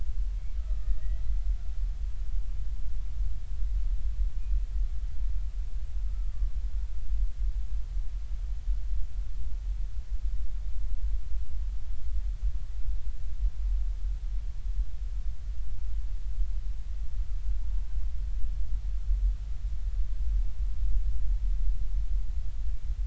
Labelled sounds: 0.8	1.4	killer whale, Bigg's (transient), 1.8 to 2.0 kHz

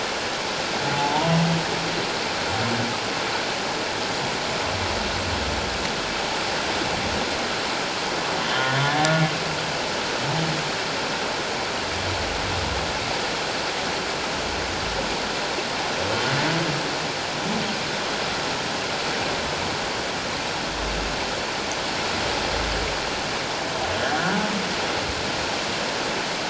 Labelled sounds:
0.9	1.3	humpback whale, 0.81 to 1.0 kHz

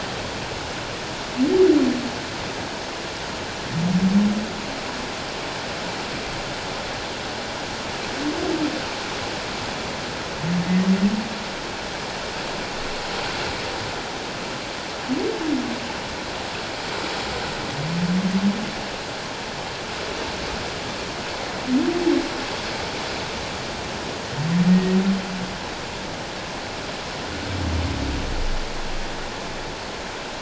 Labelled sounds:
24.7	25.0	humpback whale, 1.8 to 1.9 kHz

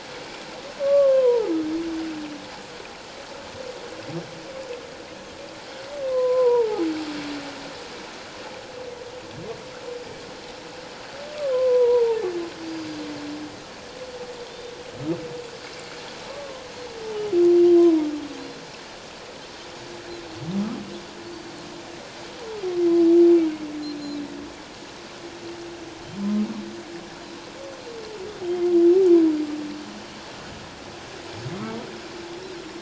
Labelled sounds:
0.8	1.5	humpback whale, 0.81 to 1.2 kHz
6.1	6.9	humpback whale, 0.78 to 1.1 kHz
11.4	12.2	humpback whale, 0.81 to 1.3 kHz
12.7	13.0	Pacific white-sided dolphin, 4.7 to 4.8 kHz
14.5	14.8	Pacific white-sided dolphin, 3.4 to 3.9 kHz
16.3	16.6	humpback whale, 0.97 to 1.2 kHz
17.8	18.1	humpback whale, 0.88 to 1.1 kHz

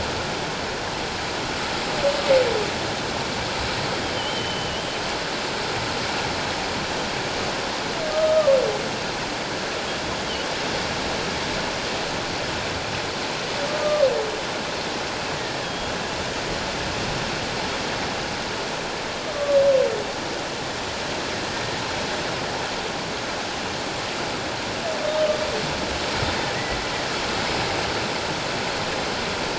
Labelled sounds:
4.1	4.8	humpback whale, 2.8 to 3.2 kHz
8.1	8.6	humpback whale, 1.1 to 1.3 kHz
15.4	15.9	humpback whale, 1.6 to 3.4 kHz

